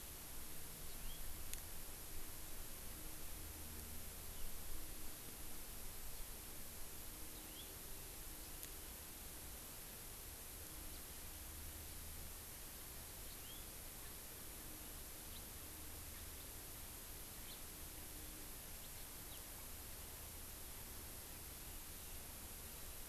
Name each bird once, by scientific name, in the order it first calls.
Crithagra mozambica